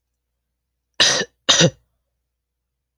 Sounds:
Cough